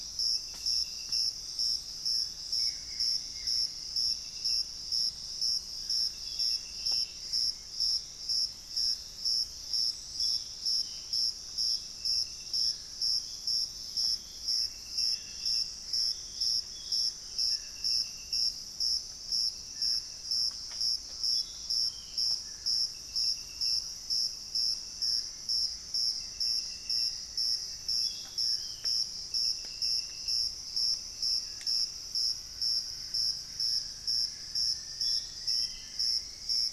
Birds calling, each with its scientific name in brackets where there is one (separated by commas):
Buff-throated Woodcreeper (Xiphorhynchus guttatus), Gray Antbird (Cercomacra cinerascens), Dusky-throated Antshrike (Thamnomanes ardesiacus), Black-faced Antthrush (Formicarius analis), Cinnamon-rumped Foliage-gleaner (Philydor pyrrhodes), Ringed Antpipit (Corythopis torquatus), Thrush-like Wren (Campylorhynchus turdinus)